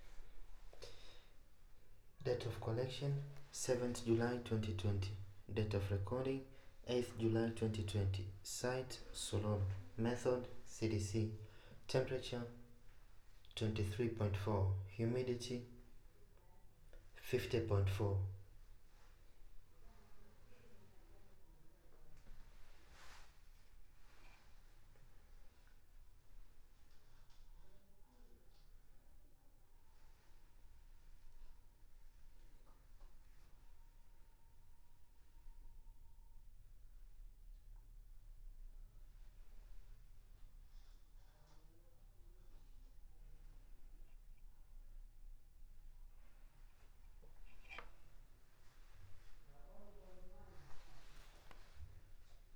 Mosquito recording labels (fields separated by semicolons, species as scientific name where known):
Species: no mosquito; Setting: cup